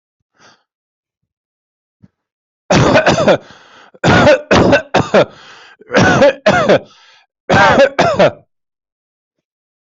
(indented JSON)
{
  "expert_labels": [
    {
      "quality": "poor",
      "cough_type": "unknown",
      "dyspnea": false,
      "wheezing": false,
      "stridor": false,
      "choking": false,
      "congestion": false,
      "nothing": true,
      "diagnosis": "healthy cough",
      "severity": "pseudocough/healthy cough"
    }
  ],
  "age": 29,
  "gender": "male",
  "respiratory_condition": false,
  "fever_muscle_pain": false,
  "status": "healthy"
}